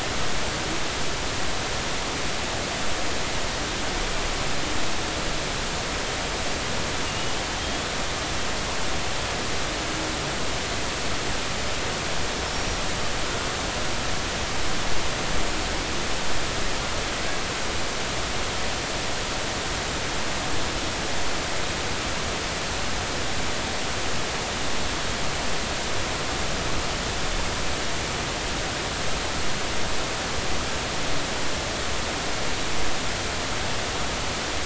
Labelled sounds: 7.1	7.9	killer whale, Bigg's (transient), 2.8 to 3.5 kHz
12.5	12.8	killer whale, Bigg's (transient), 5.5 to 5.8 kHz

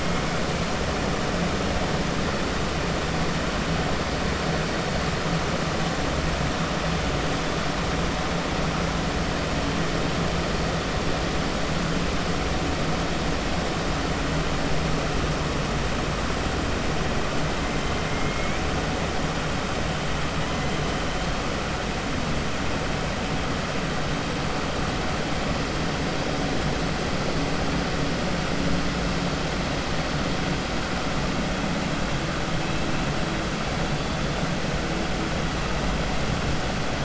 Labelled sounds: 18.1	18.6	killer whale, 1.3 to 2.4 kHz

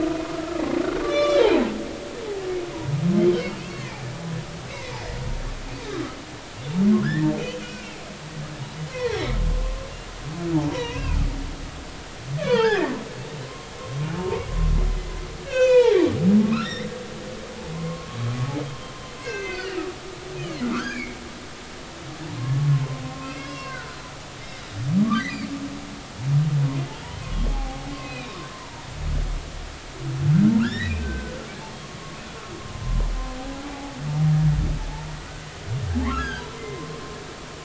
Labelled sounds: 1.0	1.5	humpback whale, 1.1 to 5.9 kHz
4.7	5.0	humpback whale, 1.9 to 2.3 kHz
7.0	7.3	humpback whale, 1.3 to 2.0 kHz
7.6	7.9	humpback whale, 2.2 to 2.7 kHz
8.9	9.3	humpback whale, 0.83 to 5.7 kHz
10.5	11.2	humpback whale, 0.83 to 2.8 kHz
12.4	12.9	humpback whale, 0.80 to 5.2 kHz
13.4	14.5	humpback whale, 0.80 to 1.2 kHz
14.9	15.1	humpback whale, 2.0 to 2.1 kHz
15.4	16.9	humpback whale, 0.80 to 7.3 kHz
17.7	19.8	humpback whale, 0.90 to 6.6 kHz
20.4	21.2	humpback whale, 1.1 to 2.6 kHz
22.7	23.9	humpback whale, 0.99 to 5.6 kHz
27.2	28.9	humpback whale, 0.80 to 2.7 kHz
30.6	31.4	humpback whale, 1.2 to 4.0 kHz
31.8	33.1	humpback whale, 0.93 to 2.7 kHz
33.7	34.0	humpback whale, 0.80 to 0.90 kHz
36.1	36.9	humpback whale, 0.99 to 3.4 kHz

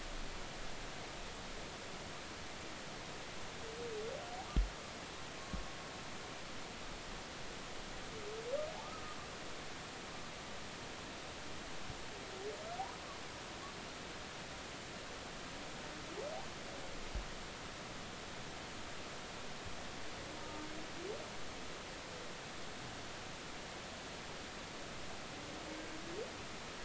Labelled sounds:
20.4	20.7	humpback whale, 1.2 to 1.3 kHz

